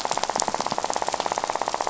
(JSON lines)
{"label": "biophony, rattle", "recorder": "SoundTrap 500"}